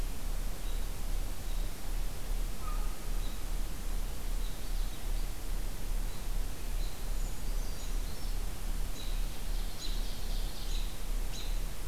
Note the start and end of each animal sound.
[0.56, 0.85] American Robin (Turdus migratorius)
[1.35, 1.72] American Robin (Turdus migratorius)
[2.50, 3.02] American Herring Gull (Larus smithsonianus)
[3.10, 3.40] American Robin (Turdus migratorius)
[4.36, 4.62] American Robin (Turdus migratorius)
[4.42, 5.35] Purple Finch (Haemorhous purpureus)
[6.04, 6.26] American Robin (Turdus migratorius)
[6.73, 7.05] American Robin (Turdus migratorius)
[7.13, 8.36] Brown Creeper (Certhia americana)
[8.87, 9.21] American Robin (Turdus migratorius)
[9.27, 10.88] Ovenbird (Seiurus aurocapilla)
[9.72, 9.94] American Robin (Turdus migratorius)
[10.57, 10.85] American Robin (Turdus migratorius)
[11.20, 11.55] American Robin (Turdus migratorius)

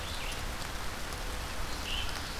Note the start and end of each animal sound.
[0.00, 2.40] Red-eyed Vireo (Vireo olivaceus)
[1.57, 2.40] Ovenbird (Seiurus aurocapilla)

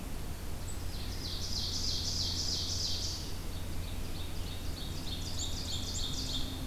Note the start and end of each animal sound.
[0.00, 6.11] Black-capped Chickadee (Poecile atricapillus)
[0.70, 6.56] Ovenbird (Seiurus aurocapilla)

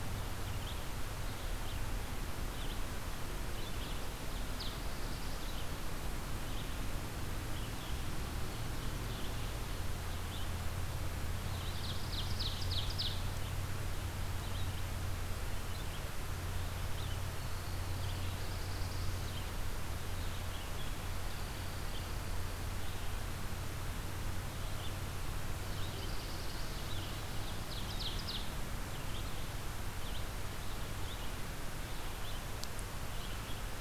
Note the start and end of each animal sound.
[0.00, 33.80] Red-eyed Vireo (Vireo olivaceus)
[4.52, 5.80] Black-throated Blue Warbler (Setophaga caerulescens)
[11.32, 13.21] Ovenbird (Seiurus aurocapilla)
[17.91, 19.37] Black-throated Blue Warbler (Setophaga caerulescens)
[20.95, 22.68] Dark-eyed Junco (Junco hyemalis)
[25.54, 26.96] Black-throated Blue Warbler (Setophaga caerulescens)
[27.27, 28.63] Ovenbird (Seiurus aurocapilla)

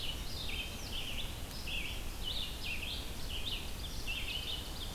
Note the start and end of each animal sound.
[0.00, 4.94] Red-eyed Vireo (Vireo olivaceus)
[4.38, 4.94] Ovenbird (Seiurus aurocapilla)

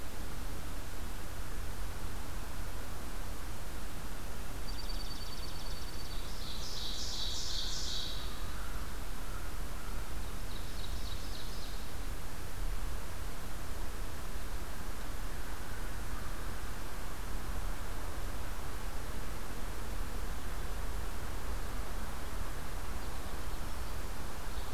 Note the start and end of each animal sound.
[4.56, 6.42] Dark-eyed Junco (Junco hyemalis)
[6.05, 8.87] Ovenbird (Seiurus aurocapilla)
[9.81, 12.31] Ovenbird (Seiurus aurocapilla)

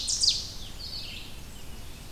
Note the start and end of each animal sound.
[0.00, 0.56] Ovenbird (Seiurus aurocapilla)
[0.00, 2.12] Red-eyed Vireo (Vireo olivaceus)
[0.37, 2.12] Rose-breasted Grosbeak (Pheucticus ludovicianus)
[0.39, 1.72] Blackburnian Warbler (Setophaga fusca)

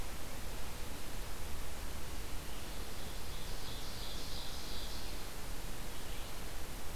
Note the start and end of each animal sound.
[2.95, 5.05] Ovenbird (Seiurus aurocapilla)

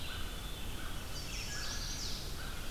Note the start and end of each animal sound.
[0.00, 0.98] Black-capped Chickadee (Poecile atricapillus)
[0.00, 2.70] American Crow (Corvus brachyrhynchos)
[0.00, 2.70] Red-eyed Vireo (Vireo olivaceus)
[0.90, 2.18] Chestnut-sided Warbler (Setophaga pensylvanica)

